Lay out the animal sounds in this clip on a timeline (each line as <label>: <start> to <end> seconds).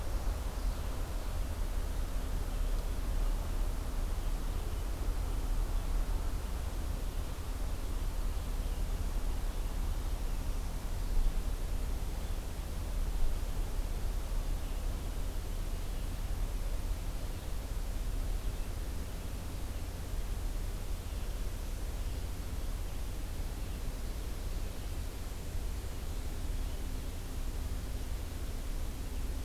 Ovenbird (Seiurus aurocapilla): 0.1 to 1.4 seconds